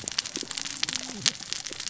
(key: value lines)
label: biophony, cascading saw
recorder: SoundTrap 600 or HydroMoth